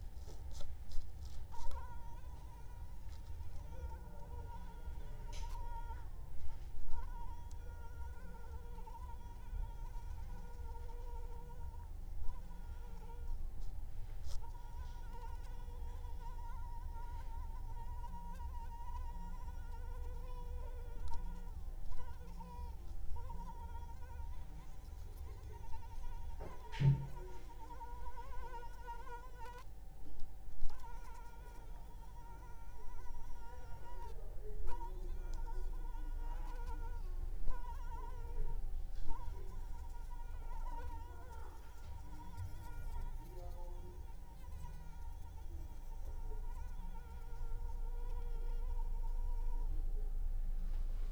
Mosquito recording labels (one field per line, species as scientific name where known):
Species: Anopheles arabiensis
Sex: female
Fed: unfed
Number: one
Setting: cup